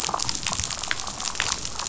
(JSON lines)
{"label": "biophony, damselfish", "recorder": "SoundTrap 500"}